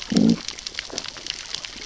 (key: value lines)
label: biophony, growl
recorder: SoundTrap 600 or HydroMoth